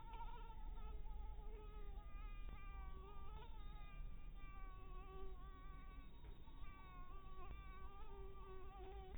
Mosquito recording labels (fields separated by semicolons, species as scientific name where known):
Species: mosquito; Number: one; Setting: cup